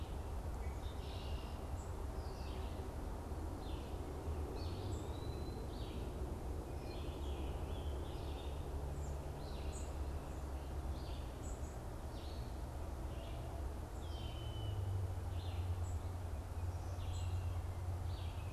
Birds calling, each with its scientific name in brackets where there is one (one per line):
Red-winged Blackbird (Agelaius phoeniceus)
Red-eyed Vireo (Vireo olivaceus)
unidentified bird
Eastern Wood-Pewee (Contopus virens)
Scarlet Tanager (Piranga olivacea)